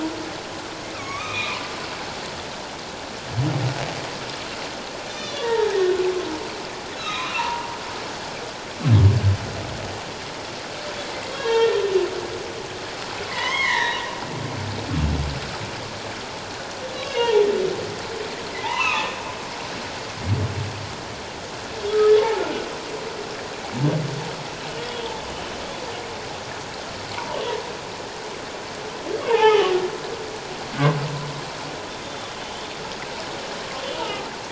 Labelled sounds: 0.9	1.6	humpback whale, 1.0 to 4.0 kHz
5.1	5.5	humpback whale, 3.2 to 6.1 kHz
7.0	7.8	humpback whale, 0.84 to 4.1 kHz
11.3	11.8	humpback whale, 0.84 to 3.4 kHz
13.3	14.0	humpback whale, 0.84 to 4.0 kHz
17.0	17.5	humpback whale, 0.81 to 3.0 kHz
18.5	19.1	humpback whale, 0.81 to 3.0 kHz
21.9	22.4	humpback whale, 0.78 to 1.3 kHz
24.8	25.1	humpback whale, 3.2 to 3.4 kHz
29.3	29.7	humpback whale, 0.78 to 3.1 kHz
30.7	31.0	humpback whale, 1.4 to 1.6 kHz
32.0	32.3	humpback whale, 3.3 to 3.7 kHz
34.0	34.3	humpback whale, 1.2 to 1.5 kHz

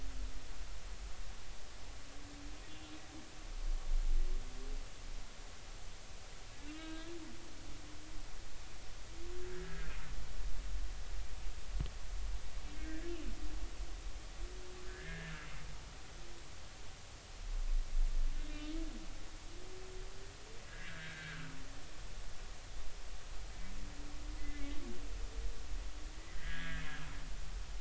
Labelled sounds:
6.7	7.1	humpback whale, 1.2 to 4.0 kHz
9.6	9.9	humpback whale, 1.5 to 1.7 kHz
12.8	13.1	humpback whale, 1.5 to 2.0 kHz
14.8	15.3	humpback whale, 1.5 to 1.9 kHz
18.5	18.7	humpback whale, 2.7 to 2.8 kHz
20.7	21.5	humpback whale, 1.3 to 1.8 kHz
24.4	24.8	humpback whale, 1.9 to 2.1 kHz
26.3	26.9	humpback whale, 1.5 to 2.0 kHz

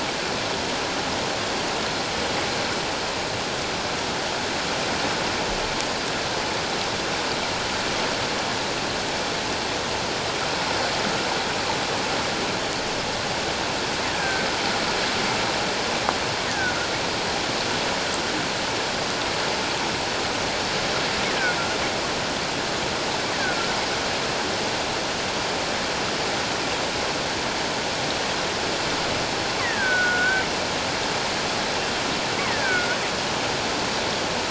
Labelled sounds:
14.2	14.5	killer whale, offshore, call OFF17, 1.5 to 1.8 kHz
16.5	16.7	killer whale, offshore, call OFF17, 1.4 to 1.9 kHz
29.6	30.4	killer whale, offshore, call OFF17, 1.3 to 2.1 kHz
32.4	33.0	killer whale, offshore, call OFF17, 1.3 to 2.3 kHz

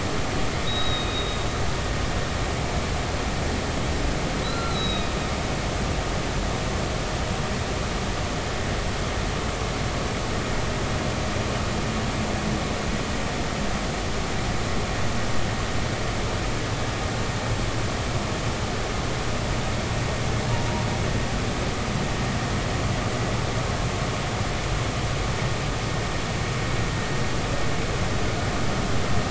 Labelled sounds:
0.7	1.4	humpback whale, 2.4 to 4.0 kHz
4.4	5.1	humpback whale, 1.3 to 4.2 kHz

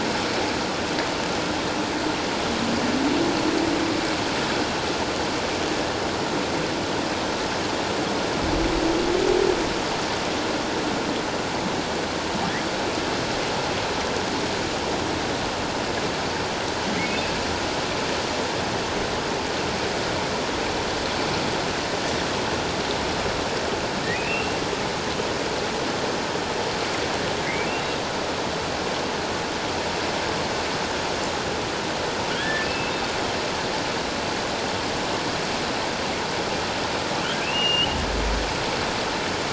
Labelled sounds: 17.1	17.3	humpback whale, 2.5 to 2.7 kHz
24.1	24.6	humpback whale, 2.3 to 2.8 kHz
32.4	32.9	humpback whale, 1.5 to 2.8 kHz
37.4	37.9	humpback whale, 2.3 to 3.1 kHz

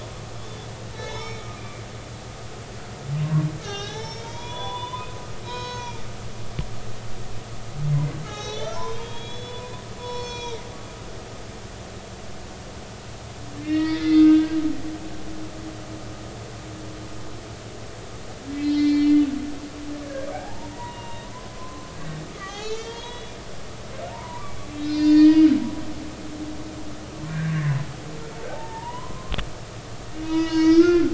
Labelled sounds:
0.9	1.8	humpback whale, 0.83 to 6.8 kHz
3.6	6.0	humpback whale, 0.80 to 6.4 kHz
7.9	10.7	humpback whale, 0.80 to 6.3 kHz
13.6	14.6	humpback whale, 1.5 to 5.4 kHz
18.6	19.2	humpback whale, 1.7 to 5.1 kHz
20.3	25.5	humpback whale, 0.80 to 7.4 kHz
27.3	29.3	humpback whale, 0.80 to 2.1 kHz
30.1	31.1	humpback whale, 0.93 to 6.8 kHz

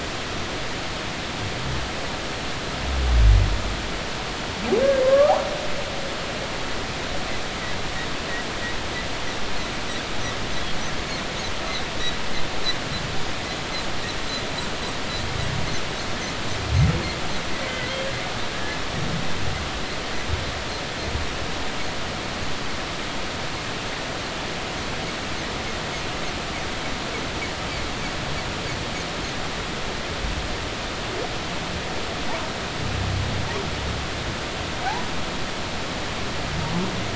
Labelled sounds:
5.0	5.3	humpback whale, 0.99 to 1.3 kHz
17.6	18.1	humpback whale, 1.9 to 2.2 kHz
18.5	18.8	humpback whale, 1.6 to 1.8 kHz

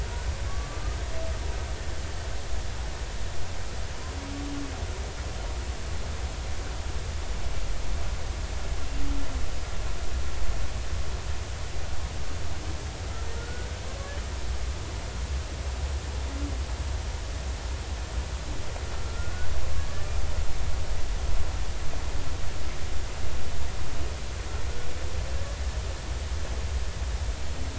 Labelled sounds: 0.5	1.0	humpback whale, 1.1 to 1.3 kHz
13.4	13.7	humpback whale, 1.4 to 1.5 kHz
19.0	19.5	humpback whale, 1.3 to 1.6 kHz

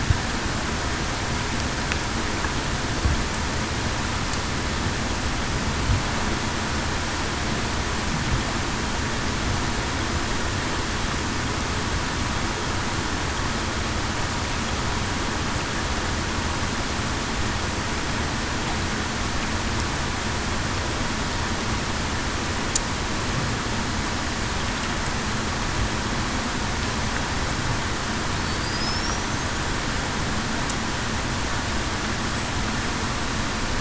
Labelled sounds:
28.8	29.1	killer whale, Bigg's (transient), 5.0 to 5.6 kHz

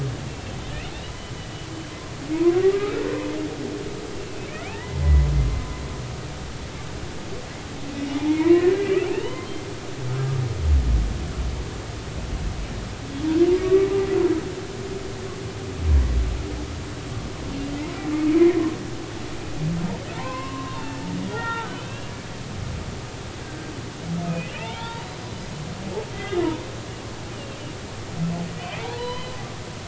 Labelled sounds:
0.3	0.5	humpback whale, 2.6 to 2.8 kHz
1.0	1.7	humpback whale, 2.9 to 4.0 kHz
2.5	2.9	humpback whale, 1.1 to 1.4 kHz
4.1	5.0	humpback whale, 0.80 to 2.8 kHz
8.3	9.5	humpback whale, 0.90 to 3.1 kHz
13.6	13.9	humpback whale, 1.1 to 2.0 kHz
18.2	18.5	humpback whale, 2.1 to 2.6 kHz
20.2	20.6	humpback whale, 2.5 to 2.7 kHz
21.1	22.2	humpback whale, 0.80 to 3.7 kHz
24.5	25.2	humpback whale, 0.83 to 4.0 kHz
26.1	27.6	humpback whale, 1.9 to 3.3 kHz
28.8	29.4	humpback whale, 0.80 to 4.1 kHz

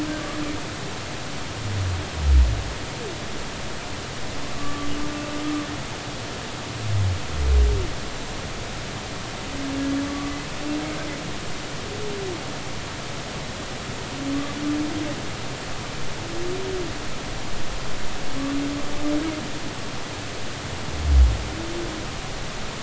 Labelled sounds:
4.5	4.9	humpback whale, 1.1 to 1.2 kHz
10.1	10.3	humpback whale, 1.1 to 1.2 kHz

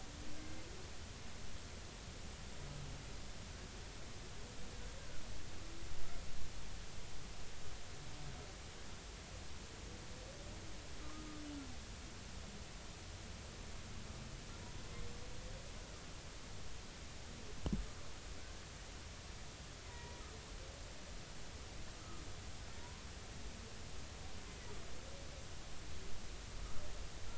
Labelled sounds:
1.4	1.6	humpback whale, 2.0 to 2.2 kHz
11.0	11.3	humpback whale, 1.0 to 1.3 kHz
19.8	20.2	humpback whale, 0.90 to 2.0 kHz
22.8	23.0	humpback whale, 0.90 to 1.1 kHz

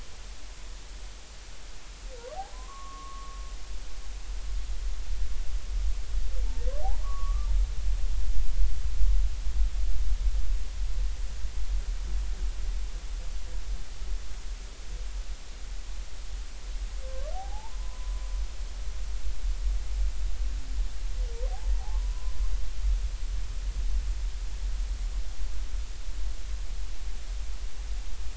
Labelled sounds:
2.5	3.4	humpback whale, 0.96 to 1.2 kHz
7.0	7.5	humpback whale, 1.0 to 1.3 kHz
17.0	18.3	humpback whale, 0.80 to 1.2 kHz
21.9	22.3	humpback whale, 0.96 to 1.1 kHz

